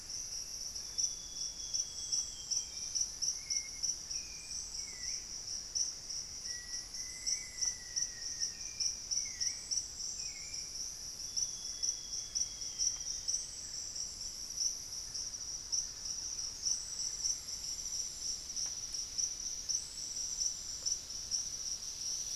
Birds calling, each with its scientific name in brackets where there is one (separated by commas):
unidentified bird, Amazonian Grosbeak (Cyanoloxia rothschildii), Lemon-throated Barbet (Eubucco richardsoni), Thrush-like Wren (Campylorhynchus turdinus), Hauxwell's Thrush (Turdus hauxwelli), Black-faced Antthrush (Formicarius analis)